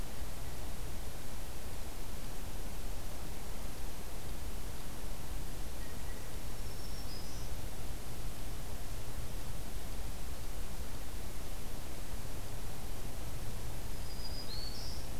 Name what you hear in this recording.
Blue Jay, Black-throated Green Warbler